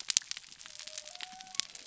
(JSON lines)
{"label": "biophony", "recorder": "SoundTrap 300"}